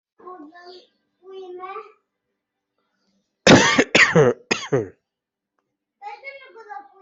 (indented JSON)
{
  "expert_labels": [
    {
      "quality": "ok",
      "cough_type": "dry",
      "dyspnea": false,
      "wheezing": false,
      "stridor": false,
      "choking": false,
      "congestion": false,
      "nothing": true,
      "diagnosis": "COVID-19",
      "severity": "mild"
    }
  ],
  "age": 32,
  "gender": "male",
  "respiratory_condition": false,
  "fever_muscle_pain": false,
  "status": "symptomatic"
}